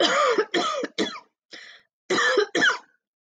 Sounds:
Cough